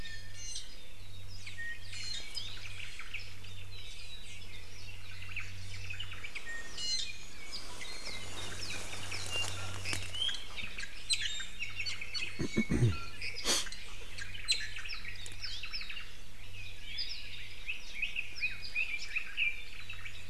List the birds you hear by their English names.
Iiwi, Omao, Apapane, Red-billed Leiothrix